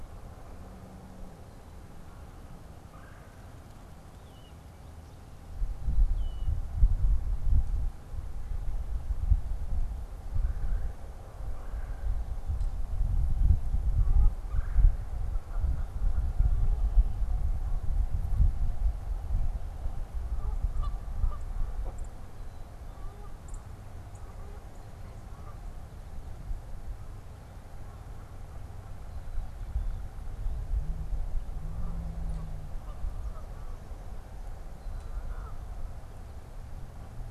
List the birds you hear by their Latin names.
Melanerpes carolinus, Agelaius phoeniceus, Branta canadensis, unidentified bird